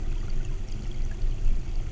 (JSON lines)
{"label": "anthrophony, boat engine", "recorder": "SoundTrap 300"}